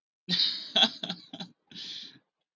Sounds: Laughter